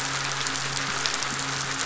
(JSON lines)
{"label": "biophony, midshipman", "recorder": "SoundTrap 500"}